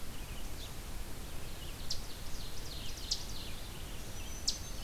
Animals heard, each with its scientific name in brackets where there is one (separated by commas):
Ovenbird (Seiurus aurocapilla), Eastern Chipmunk (Tamias striatus), Red-eyed Vireo (Vireo olivaceus), Black-throated Green Warbler (Setophaga virens)